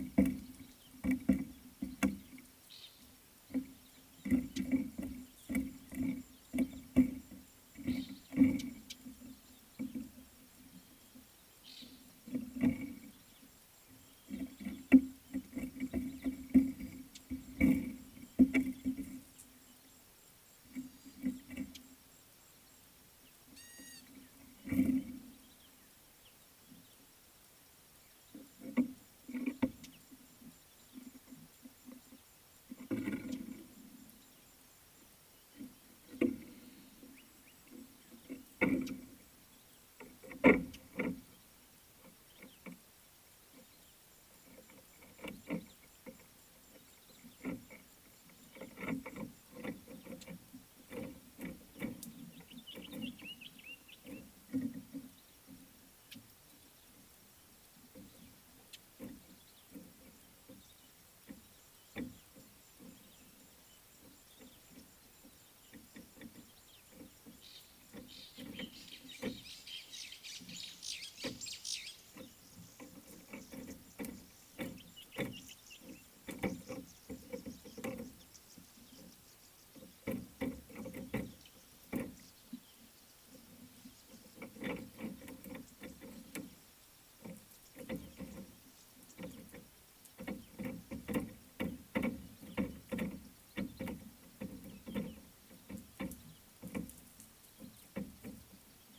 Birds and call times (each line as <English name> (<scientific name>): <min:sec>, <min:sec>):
Gray-backed Camaroptera (Camaroptera brevicaudata): 0:23.8
Common Bulbul (Pycnonotus barbatus): 0:53.1, 1:15.5
Fork-tailed Drongo (Dicrurus adsimilis): 1:08.9
White-browed Sparrow-Weaver (Plocepasser mahali): 1:10.3, 1:11.7